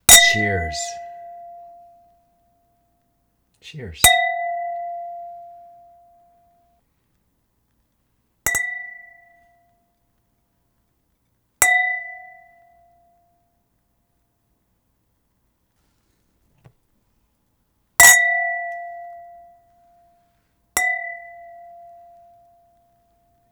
is any liquid being poured into any glasses?
no